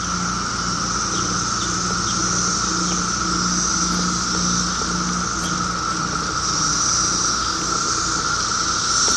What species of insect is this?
Magicicada septendecula